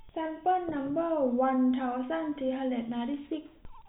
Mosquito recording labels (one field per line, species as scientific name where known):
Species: no mosquito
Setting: cup